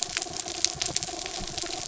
{"label": "anthrophony, mechanical", "recorder": "SoundTrap 300"}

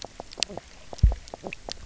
{"label": "biophony, knock croak", "recorder": "SoundTrap 300"}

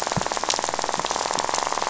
{"label": "biophony, rattle", "recorder": "SoundTrap 500"}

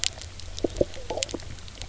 {"label": "biophony, knock croak", "recorder": "SoundTrap 300"}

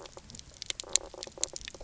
{"label": "biophony, knock croak", "recorder": "SoundTrap 300"}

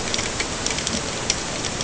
{"label": "ambient", "recorder": "HydroMoth"}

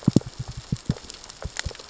{"label": "biophony, knock", "recorder": "SoundTrap 600 or HydroMoth"}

